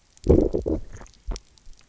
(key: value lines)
label: biophony, low growl
recorder: SoundTrap 300